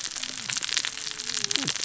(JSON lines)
{"label": "biophony, cascading saw", "recorder": "SoundTrap 600 or HydroMoth"}